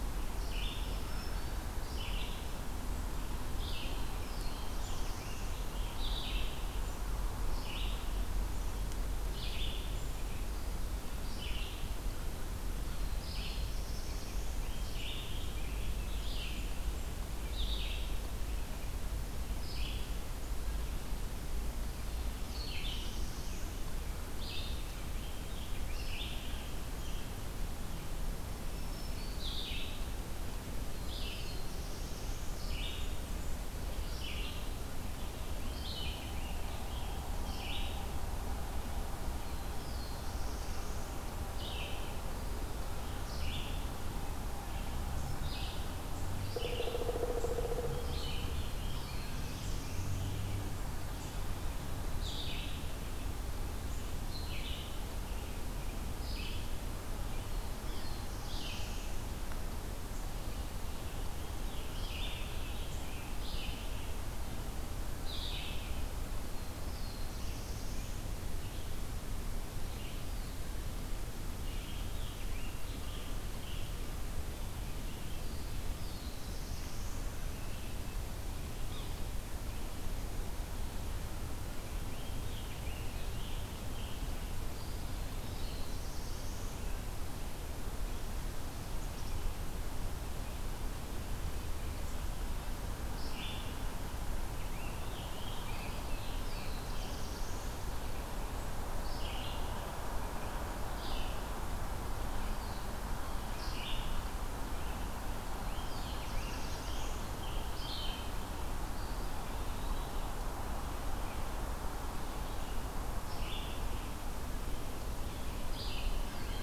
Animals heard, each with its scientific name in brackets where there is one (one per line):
Eastern Wood-Pewee (Contopus virens)
Yellow-bellied Sapsucker (Sphyrapicus varius)
Pileated Woodpecker (Dryocopus pileatus)
Blackburnian Warbler (Setophaga fusca)
Black-throated Blue Warbler (Setophaga caerulescens)
Black-throated Green Warbler (Setophaga virens)
Red-eyed Vireo (Vireo olivaceus)
American Robin (Turdus migratorius)